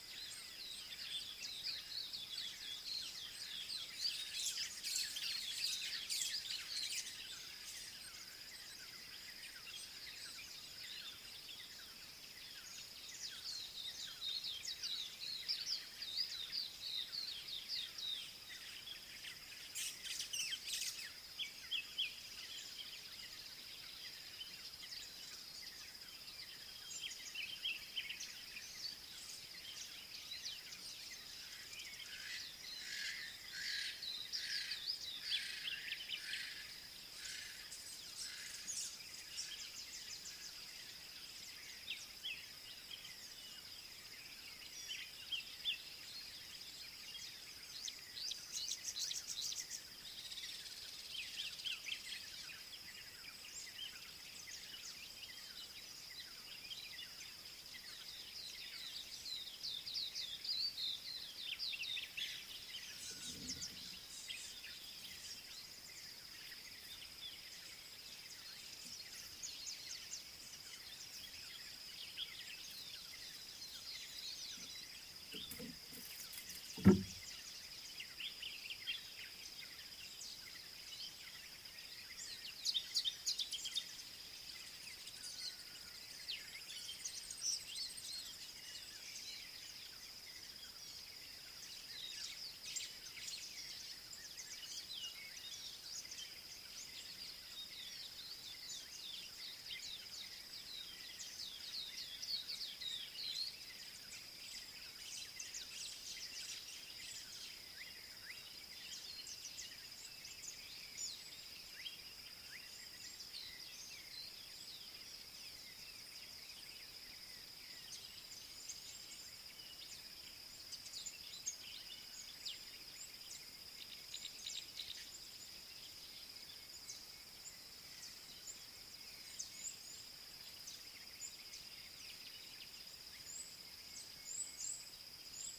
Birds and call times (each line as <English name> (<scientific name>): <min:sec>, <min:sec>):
Pale White-eye (Zosterops flavilateralis): 0:15.0, 1:00.0, 1:41.9
White-browed Sparrow-Weaver (Plocepasser mahali): 0:20.8
Yellow-necked Francolin (Pternistis leucoscepus): 0:33.8
Tawny-flanked Prinia (Prinia subflava): 0:49.4
Gray-headed Kingfisher (Halcyon leucocephala): 0:50.6
Gray-backed Camaroptera (Camaroptera brevicaudata): 2:04.0
Red-cheeked Cordonbleu (Uraeginthus bengalus): 2:14.3